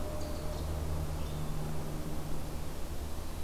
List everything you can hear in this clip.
forest ambience